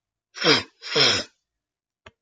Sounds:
Sniff